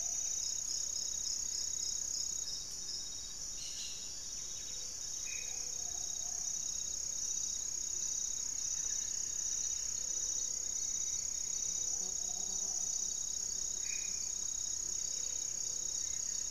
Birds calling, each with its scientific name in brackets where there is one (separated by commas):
Plumbeous Antbird (Myrmelastes hyperythrus), Gray-fronted Dove (Leptotila rufaxilla), Hauxwell's Thrush (Turdus hauxwelli), Long-winged Antwren (Myrmotherula longipennis), Black-faced Antthrush (Formicarius analis), Amazonian Trogon (Trogon ramonianus), Buff-breasted Wren (Cantorchilus leucotis), Solitary Black Cacique (Cacicus solitarius)